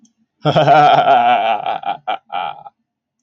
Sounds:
Laughter